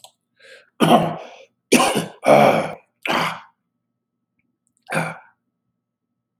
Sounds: Throat clearing